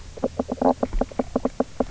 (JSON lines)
{"label": "biophony, knock croak", "recorder": "SoundTrap 300"}